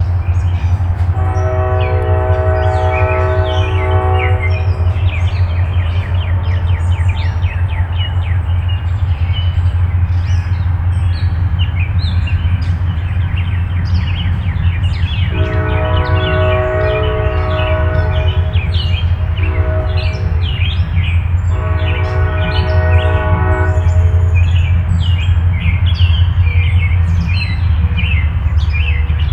Is there a cat purring?
no